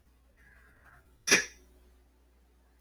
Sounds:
Sneeze